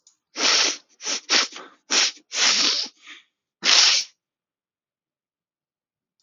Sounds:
Sniff